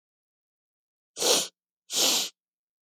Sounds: Sniff